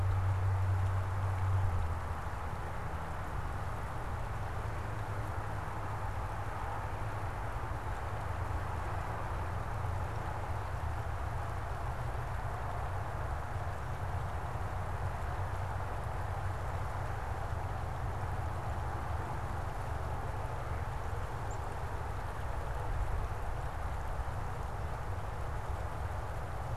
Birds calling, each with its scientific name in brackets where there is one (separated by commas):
Black-capped Chickadee (Poecile atricapillus)